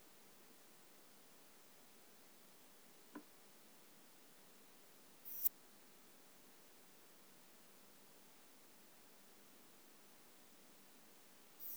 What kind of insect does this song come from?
orthopteran